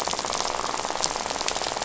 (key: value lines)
label: biophony, rattle
recorder: SoundTrap 500